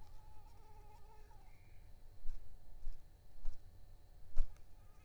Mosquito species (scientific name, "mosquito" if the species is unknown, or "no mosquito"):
Anopheles arabiensis